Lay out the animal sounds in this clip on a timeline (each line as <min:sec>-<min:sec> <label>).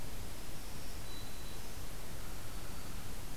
0:00.0-0:01.9 Black-throated Green Warbler (Setophaga virens)
0:02.4-0:03.0 Black-throated Green Warbler (Setophaga virens)